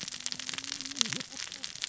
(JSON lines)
{"label": "biophony, cascading saw", "recorder": "SoundTrap 600 or HydroMoth"}